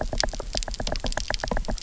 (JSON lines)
{"label": "biophony, knock", "recorder": "SoundTrap 300"}